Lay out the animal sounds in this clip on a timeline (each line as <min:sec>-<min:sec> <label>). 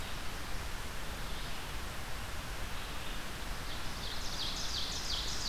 0:00.0-0:05.5 Red-eyed Vireo (Vireo olivaceus)
0:03.6-0:05.5 Ovenbird (Seiurus aurocapilla)
0:04.8-0:05.5 Blackburnian Warbler (Setophaga fusca)